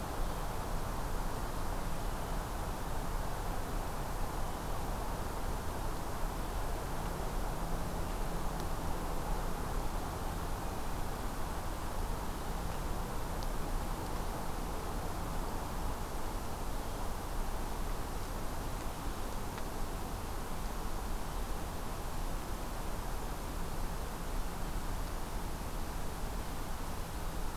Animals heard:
forest ambience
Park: Acadia National Park